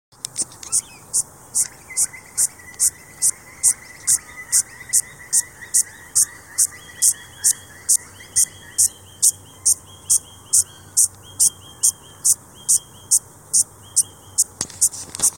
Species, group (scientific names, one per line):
Yoyetta repetens
Cicadidae